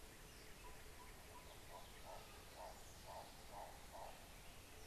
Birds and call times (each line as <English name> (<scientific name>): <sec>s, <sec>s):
Hartlaub's Turaco (Tauraco hartlaubi): 3.1s